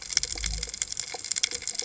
{"label": "biophony", "recorder": "HydroMoth"}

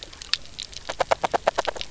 {"label": "biophony, knock croak", "recorder": "SoundTrap 300"}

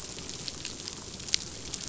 {"label": "biophony, chatter", "recorder": "SoundTrap 500"}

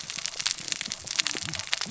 {"label": "biophony, cascading saw", "recorder": "SoundTrap 600 or HydroMoth"}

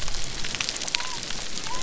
{"label": "biophony", "recorder": "SoundTrap 300"}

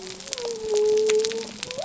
{"label": "biophony", "recorder": "SoundTrap 300"}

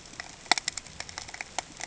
{"label": "ambient", "recorder": "HydroMoth"}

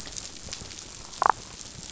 {"label": "biophony, damselfish", "recorder": "SoundTrap 500"}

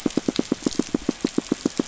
{"label": "biophony, pulse", "recorder": "SoundTrap 500"}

